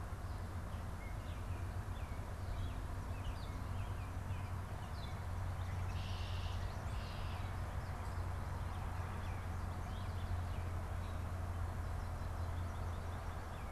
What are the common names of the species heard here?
American Robin, Baltimore Oriole, Red-winged Blackbird